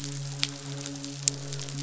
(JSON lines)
{"label": "biophony, midshipman", "recorder": "SoundTrap 500"}
{"label": "biophony, croak", "recorder": "SoundTrap 500"}